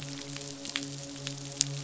{"label": "biophony, midshipman", "recorder": "SoundTrap 500"}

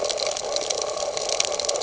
{"label": "ambient", "recorder": "HydroMoth"}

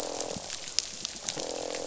{"label": "biophony, croak", "recorder": "SoundTrap 500"}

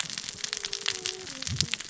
{"label": "biophony, cascading saw", "recorder": "SoundTrap 600 or HydroMoth"}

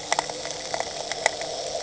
{"label": "anthrophony, boat engine", "recorder": "HydroMoth"}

